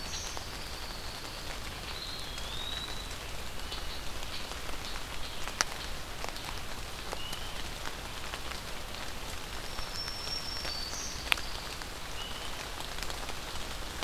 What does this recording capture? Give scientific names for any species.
Setophaga pinus, Contopus virens, unidentified call, Setophaga virens